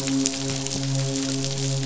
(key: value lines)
label: biophony, midshipman
recorder: SoundTrap 500